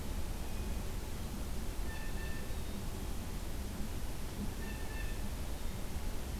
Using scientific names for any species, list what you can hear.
Cyanocitta cristata